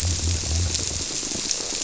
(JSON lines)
{"label": "biophony", "recorder": "SoundTrap 300"}